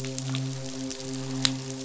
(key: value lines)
label: biophony, midshipman
recorder: SoundTrap 500